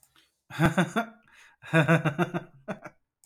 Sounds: Laughter